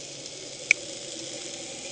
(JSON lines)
{"label": "anthrophony, boat engine", "recorder": "HydroMoth"}